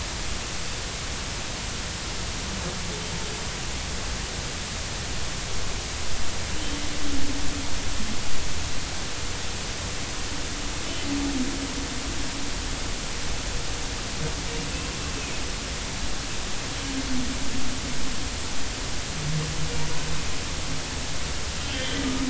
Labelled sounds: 21.6	22.0	humpback whale, 2.9 to 3.3 kHz

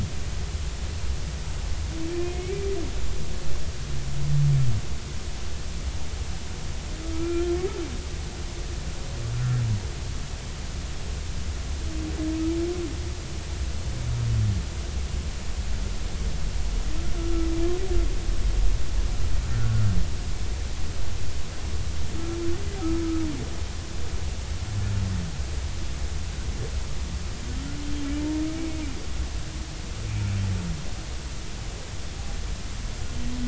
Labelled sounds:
2.1	2.6	humpback whale, 2.0 to 2.5 kHz
7.1	7.6	humpback whale, 1.2 to 2.4 kHz
9.3	9.6	humpback whale, 1.3 to 1.5 kHz
17.1	17.5	humpback whale, 1.3 to 1.4 kHz
19.5	19.9	humpback whale, 1.3 to 1.5 kHz

